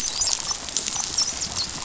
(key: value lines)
label: biophony, dolphin
recorder: SoundTrap 500